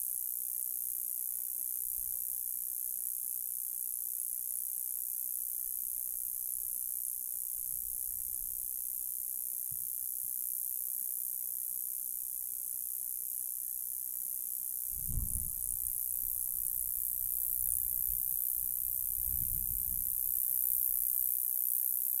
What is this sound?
Gampsocleis glabra, an orthopteran